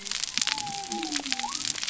{"label": "biophony", "recorder": "SoundTrap 300"}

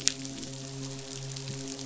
{"label": "biophony, midshipman", "recorder": "SoundTrap 500"}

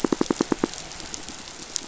{"label": "biophony, pulse", "recorder": "SoundTrap 500"}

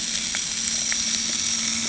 {"label": "anthrophony, boat engine", "recorder": "HydroMoth"}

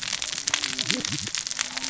{"label": "biophony, cascading saw", "recorder": "SoundTrap 600 or HydroMoth"}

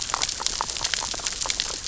{"label": "biophony, grazing", "recorder": "SoundTrap 600 or HydroMoth"}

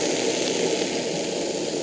{"label": "anthrophony, boat engine", "recorder": "HydroMoth"}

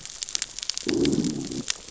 {"label": "biophony, growl", "recorder": "SoundTrap 600 or HydroMoth"}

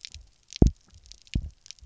{"label": "biophony, double pulse", "recorder": "SoundTrap 300"}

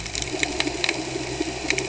{"label": "anthrophony, boat engine", "recorder": "HydroMoth"}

